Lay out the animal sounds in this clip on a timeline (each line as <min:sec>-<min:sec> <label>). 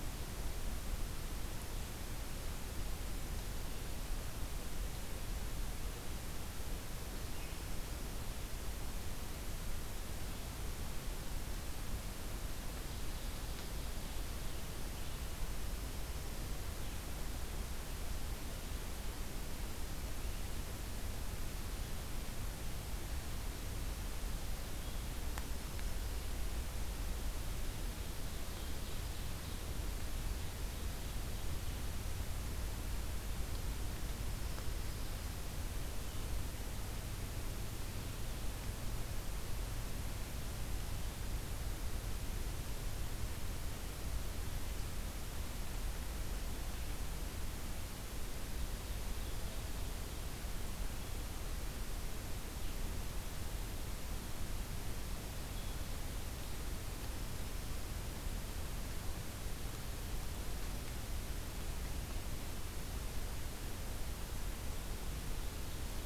0:27.8-0:29.6 Ovenbird (Seiurus aurocapilla)
0:30.2-0:31.5 Ovenbird (Seiurus aurocapilla)